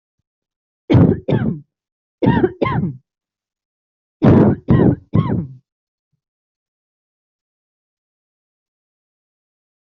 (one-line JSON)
{"expert_labels": [{"quality": "ok", "cough_type": "dry", "dyspnea": false, "wheezing": true, "stridor": false, "choking": false, "congestion": false, "nothing": false, "diagnosis": "COVID-19", "severity": "mild"}]}